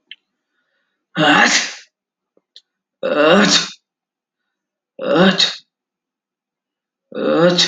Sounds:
Sneeze